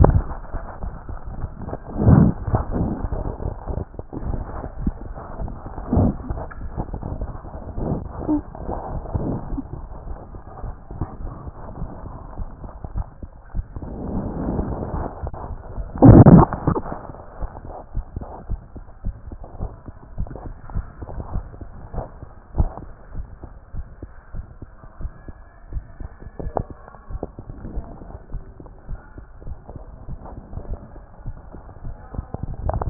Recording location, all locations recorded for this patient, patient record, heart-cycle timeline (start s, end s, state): tricuspid valve (TV)
aortic valve (AV)+pulmonary valve (PV)+tricuspid valve (TV)+mitral valve (MV)
#Age: Child
#Sex: Female
#Height: 121.0 cm
#Weight: 26.8 kg
#Pregnancy status: False
#Murmur: Absent
#Murmur locations: nan
#Most audible location: nan
#Systolic murmur timing: nan
#Systolic murmur shape: nan
#Systolic murmur grading: nan
#Systolic murmur pitch: nan
#Systolic murmur quality: nan
#Diastolic murmur timing: nan
#Diastolic murmur shape: nan
#Diastolic murmur grading: nan
#Diastolic murmur pitch: nan
#Diastolic murmur quality: nan
#Outcome: Abnormal
#Campaign: 2014 screening campaign
0.00	18.40	unannotated
18.40	18.48	diastole
18.48	18.60	S1
18.60	18.76	systole
18.76	18.84	S2
18.84	19.04	diastole
19.04	19.16	S1
19.16	19.28	systole
19.28	19.38	S2
19.38	19.60	diastole
19.60	19.70	S1
19.70	19.86	systole
19.86	19.96	S2
19.96	20.18	diastole
20.18	20.28	S1
20.28	20.44	systole
20.44	20.54	S2
20.54	20.74	diastole
20.74	20.86	S1
20.86	21.00	systole
21.00	21.08	S2
21.08	21.34	diastole
21.34	21.44	S1
21.44	21.62	systole
21.62	21.68	S2
21.68	21.94	diastole
21.94	22.06	S1
22.06	22.18	systole
22.18	22.28	S2
22.28	22.56	diastole
22.56	22.70	S1
22.70	22.84	systole
22.84	22.94	S2
22.94	23.16	diastole
23.16	23.26	S1
23.26	23.44	systole
23.44	23.52	S2
23.52	23.74	diastole
23.74	23.86	S1
23.86	24.02	systole
24.02	24.12	S2
24.12	24.34	diastole
24.34	24.46	S1
24.46	24.62	systole
24.62	24.72	S2
24.72	25.02	diastole
25.02	25.12	S1
25.12	25.28	systole
25.28	25.38	S2
25.38	25.72	diastole
25.72	25.84	S1
25.84	26.00	systole
26.00	26.10	S2
26.10	26.40	diastole
26.40	32.90	unannotated